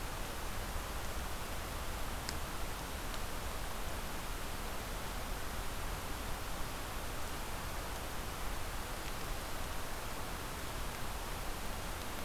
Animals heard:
forest ambience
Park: Acadia National Park